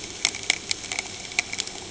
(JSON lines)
{"label": "anthrophony, boat engine", "recorder": "HydroMoth"}